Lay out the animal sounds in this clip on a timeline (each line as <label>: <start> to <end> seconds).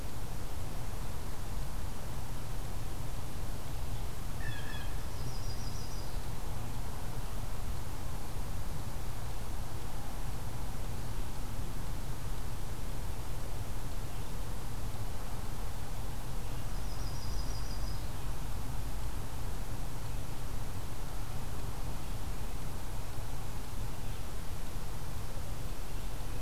Blue Jay (Cyanocitta cristata): 4.4 to 4.9 seconds
Yellow-rumped Warbler (Setophaga coronata): 5.0 to 6.2 seconds
Red-eyed Vireo (Vireo olivaceus): 13.9 to 26.4 seconds
Yellow-rumped Warbler (Setophaga coronata): 16.6 to 18.1 seconds